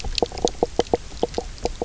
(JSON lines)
{"label": "biophony, knock croak", "recorder": "SoundTrap 300"}